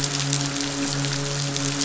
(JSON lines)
{"label": "biophony, midshipman", "recorder": "SoundTrap 500"}